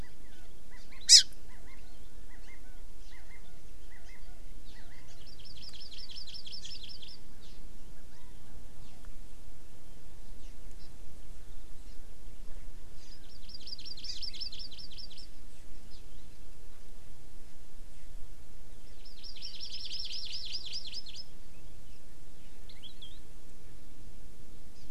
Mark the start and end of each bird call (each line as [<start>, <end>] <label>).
[0.00, 1.00] Chinese Hwamei (Garrulax canorus)
[0.80, 1.20] Hawaii Amakihi (Chlorodrepanis virens)
[1.50, 2.00] Chinese Hwamei (Garrulax canorus)
[2.30, 2.80] Chinese Hwamei (Garrulax canorus)
[3.10, 3.60] Chinese Hwamei (Garrulax canorus)
[3.90, 4.40] Chinese Hwamei (Garrulax canorus)
[4.70, 5.10] Chinese Hwamei (Garrulax canorus)
[5.10, 7.60] Hawaii Amakihi (Chlorodrepanis virens)
[8.10, 8.30] Chinese Hwamei (Garrulax canorus)
[10.80, 10.90] Hawaii Amakihi (Chlorodrepanis virens)
[11.90, 12.00] Hawaii Amakihi (Chlorodrepanis virens)
[13.00, 15.30] Hawaii Amakihi (Chlorodrepanis virens)
[18.80, 21.30] Hawaii Amakihi (Chlorodrepanis virens)
[22.70, 23.20] Palila (Loxioides bailleui)
[24.80, 24.90] Hawaii Amakihi (Chlorodrepanis virens)